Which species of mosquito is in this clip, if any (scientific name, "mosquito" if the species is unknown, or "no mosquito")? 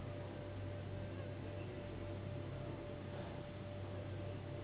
Anopheles gambiae s.s.